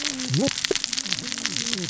{"label": "biophony, cascading saw", "recorder": "SoundTrap 600 or HydroMoth"}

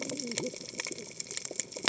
{"label": "biophony, cascading saw", "recorder": "HydroMoth"}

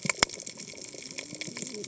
{"label": "biophony, cascading saw", "recorder": "HydroMoth"}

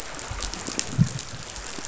{"label": "biophony, chatter", "recorder": "SoundTrap 500"}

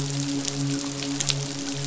{"label": "biophony, midshipman", "recorder": "SoundTrap 500"}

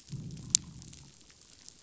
{"label": "biophony, growl", "recorder": "SoundTrap 500"}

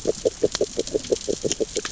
{"label": "biophony, grazing", "recorder": "SoundTrap 600 or HydroMoth"}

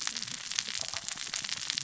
{"label": "biophony, cascading saw", "recorder": "SoundTrap 600 or HydroMoth"}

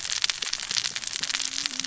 {"label": "biophony, cascading saw", "recorder": "SoundTrap 600 or HydroMoth"}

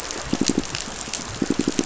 {"label": "biophony, pulse", "recorder": "SoundTrap 500"}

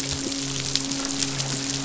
{"label": "biophony, midshipman", "recorder": "SoundTrap 500"}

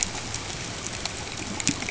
{"label": "ambient", "recorder": "HydroMoth"}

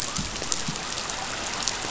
{"label": "biophony", "recorder": "SoundTrap 500"}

